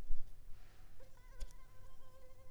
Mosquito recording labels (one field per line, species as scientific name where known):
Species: Culex pipiens complex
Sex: female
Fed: unfed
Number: one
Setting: cup